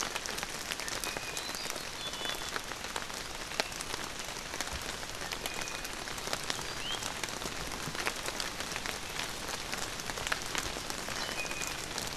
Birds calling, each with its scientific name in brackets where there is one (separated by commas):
Iiwi (Drepanis coccinea)